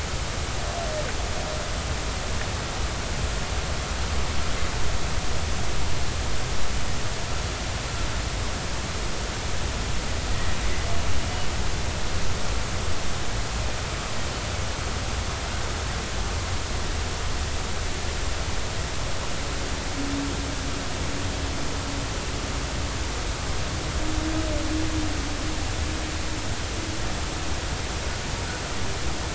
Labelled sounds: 10.3	10.6	humpback whale, 1.8 to 2.0 kHz

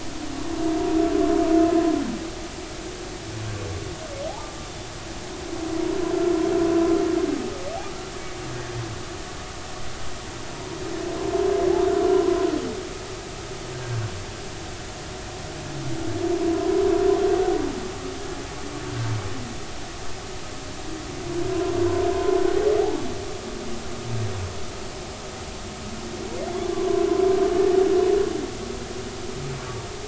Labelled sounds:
4.7	4.9	humpback whale, 3.5 to 3.6 kHz
10.5	10.8	humpback whale, 0.90 to 1.0 kHz
13.7	14.0	humpback whale, 1.5 to 1.7 kHz
22.1	23.0	humpback whale, 0.80 to 1.1 kHz

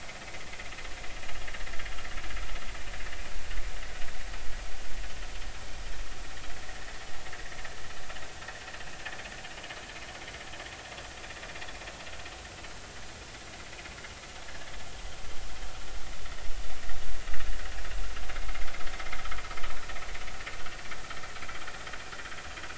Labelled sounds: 18.3	18.7	vessel noise, 1.9 to 2.2 kHz

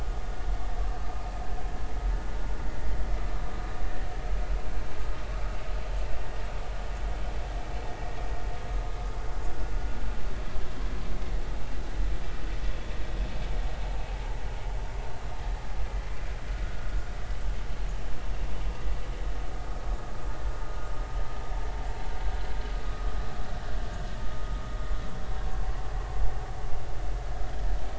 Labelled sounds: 16.6	16.9	vessel noise, 1.4 to 1.6 kHz

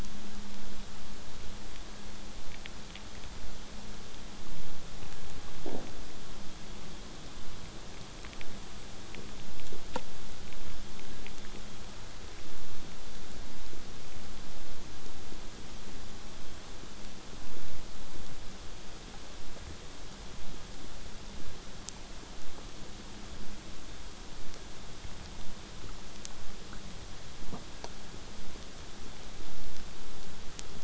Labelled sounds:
19.4	20.4	vessel noise, 0.14 to 8.0 kHz

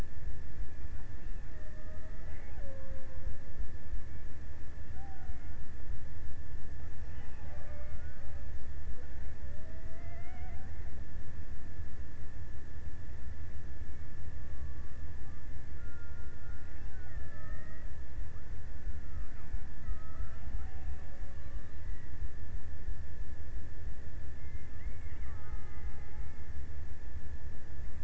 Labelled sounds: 0.9	4.3	killer whale, Bigg's (transient), 0.33 to 2.7 kHz
4.9	5.9	killer whale, Bigg's (transient), 0.39 to 2.7 kHz
6.9	8.7	killer whale, Bigg's (transient), 0.39 to 2.4 kHz
8.9	11.1	killer whale, Bigg's (transient), 0.30 to 2.7 kHz
15.4	18.8	killer whale, Bigg's (transient), 0.28 to 2.1 kHz
19.7	21.9	killer whale, Bigg's (transient), 0.33 to 1.9 kHz
24.8	26.6	killer whale, Bigg's (transient), 0.70 to 2.7 kHz

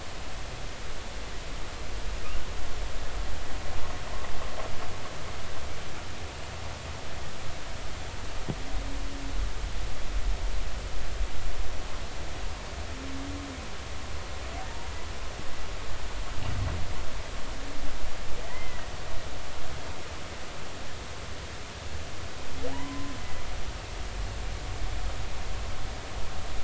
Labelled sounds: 18.4	18.9	humpback whale, 1.8 to 2.1 kHz
22.7	23.1	humpback whale, 0.80 to 1.1 kHz

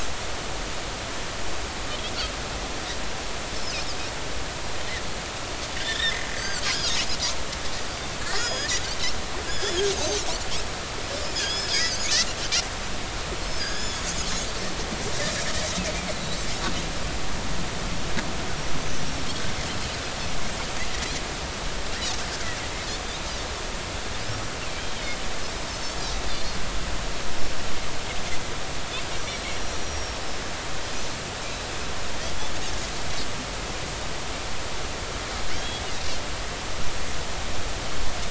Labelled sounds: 3.5	3.8	Pacific white-sided dolphin, 4.7 to 5.4 kHz
5.8	6.9	Pacific white-sided dolphin, 1.4 to 6.4 kHz
8.2	8.7	Pacific white-sided dolphin, 1.6 to 6.8 kHz
9.5	10.2	Pacific white-sided dolphin, 3.1 to 6.8 kHz
11.2	12.1	Pacific white-sided dolphin, 3.0 to 7.1 kHz
13.6	14.0	Pacific white-sided dolphin, 1.5 to 6.8 kHz
27.3	27.6	Pacific white-sided dolphin, 5.3 to 5.4 kHz
29.2	30.4	Pacific white-sided dolphin, 5.2 to 6.0 kHz
35.5	35.8	Pacific white-sided dolphin, 3.1 to 3.5 kHz

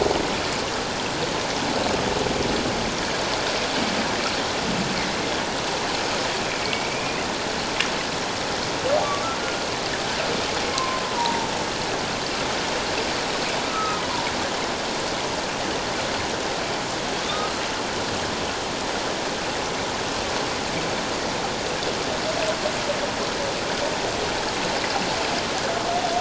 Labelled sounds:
6.4	7.2	humpback whale, 2.2 to 2.6 kHz
10.7	11.5	humpback whale, 0.84 to 1.1 kHz
13.7	14.0	humpback whale, 1.2 to 1.4 kHz
17.3	17.5	humpback whale, 1.2 to 1.3 kHz

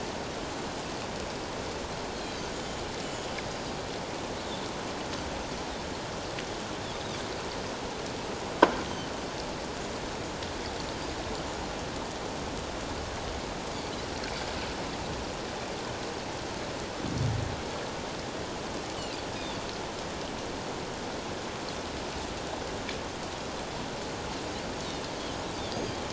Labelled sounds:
2.1	2.4	Pacific white-sided dolphin, 3.8 to 4.4 kHz
3.0	3.6	Pacific white-sided dolphin, 4.8 to 7.2 kHz
19.3	19.6	Pacific white-sided dolphin, 3.3 to 3.8 kHz
25.7	26.0	Pacific white-sided dolphin, 4.7 to 4.9 kHz

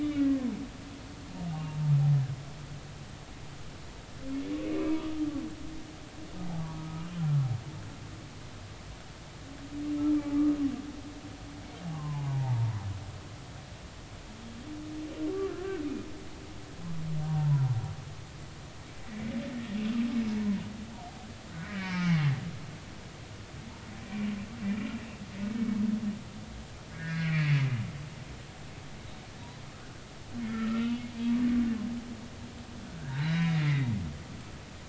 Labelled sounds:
0.2	0.5	humpback whale, 1.7 to 2.0 kHz
4.7	5.2	humpback whale, 1.1 to 1.3 kHz
6.7	7.0	humpback whale, 1.2 to 1.3 kHz
10.3	10.6	humpback whale, 1.1 to 1.3 kHz
11.9	12.8	humpback whale, 0.80 to 1.2 kHz
17.3	17.7	humpback whale, 0.86 to 1.1 kHz
20.3	20.6	humpback whale, 0.86 to 1.1 kHz
21.6	22.3	humpback whale, 0.80 to 2.5 kHz
26.9	27.5	humpback whale, 1.4 to 2.5 kHz
30.4	31.1	humpback whale, 1.2 to 2.9 kHz
33.1	33.9	humpback whale, 1.8 to 4.1 kHz

